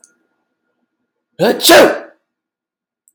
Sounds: Sneeze